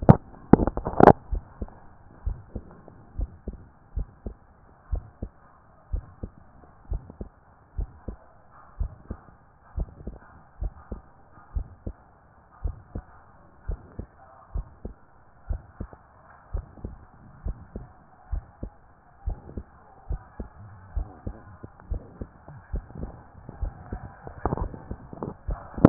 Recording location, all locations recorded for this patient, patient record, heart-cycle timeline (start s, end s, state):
pulmonary valve (PV)
aortic valve (AV)+pulmonary valve (PV)+tricuspid valve (TV)+mitral valve (MV)
#Age: Child
#Sex: Male
#Height: 145.0 cm
#Weight: 51.8 kg
#Pregnancy status: False
#Murmur: Absent
#Murmur locations: nan
#Most audible location: nan
#Systolic murmur timing: nan
#Systolic murmur shape: nan
#Systolic murmur grading: nan
#Systolic murmur pitch: nan
#Systolic murmur quality: nan
#Diastolic murmur timing: nan
#Diastolic murmur shape: nan
#Diastolic murmur grading: nan
#Diastolic murmur pitch: nan
#Diastolic murmur quality: nan
#Outcome: Abnormal
#Campaign: 2014 screening campaign
0.00	1.30	unannotated
1.30	1.42	S1
1.42	1.60	systole
1.60	1.70	S2
1.70	2.24	diastole
2.24	2.38	S1
2.38	2.54	systole
2.54	2.64	S2
2.64	3.16	diastole
3.16	3.30	S1
3.30	3.46	systole
3.46	3.56	S2
3.56	3.96	diastole
3.96	4.08	S1
4.08	4.26	systole
4.26	4.34	S2
4.34	4.90	diastole
4.90	5.04	S1
5.04	5.22	systole
5.22	5.30	S2
5.30	5.92	diastole
5.92	6.04	S1
6.04	6.22	systole
6.22	6.32	S2
6.32	6.90	diastole
6.90	7.02	S1
7.02	7.20	systole
7.20	7.28	S2
7.28	7.76	diastole
7.76	7.90	S1
7.90	8.08	systole
8.08	8.16	S2
8.16	8.78	diastole
8.78	8.92	S1
8.92	9.10	systole
9.10	9.18	S2
9.18	9.76	diastole
9.76	9.88	S1
9.88	10.06	systole
10.06	10.16	S2
10.16	10.60	diastole
10.60	10.72	S1
10.72	10.90	systole
10.90	11.00	S2
11.00	11.54	diastole
11.54	11.68	S1
11.68	11.86	systole
11.86	11.94	S2
11.94	12.64	diastole
12.64	12.76	S1
12.76	12.94	systole
12.94	13.04	S2
13.04	13.68	diastole
13.68	13.80	S1
13.80	13.98	systole
13.98	14.08	S2
14.08	14.54	diastole
14.54	14.66	S1
14.66	14.84	systole
14.84	14.94	S2
14.94	15.48	diastole
15.48	15.62	S1
15.62	15.80	systole
15.80	15.88	S2
15.88	16.52	diastole
16.52	16.66	S1
16.66	16.84	systole
16.84	16.94	S2
16.94	17.44	diastole
17.44	17.56	S1
17.56	17.76	systole
17.76	17.86	S2
17.86	18.32	diastole
18.32	18.44	S1
18.44	18.62	systole
18.62	18.72	S2
18.72	19.26	diastole
19.26	19.38	S1
19.38	19.56	systole
19.56	19.66	S2
19.66	20.10	diastole
20.10	20.20	S1
20.20	20.38	systole
20.38	20.48	S2
20.48	20.94	diastole
20.94	21.08	S1
21.08	21.26	systole
21.26	21.36	S2
21.36	21.90	diastole
21.90	22.02	S1
22.02	22.20	systole
22.20	22.28	S2
22.28	22.72	diastole
22.72	22.84	S1
22.84	23.00	systole
23.00	23.12	S2
23.12	23.60	diastole
23.60	25.89	unannotated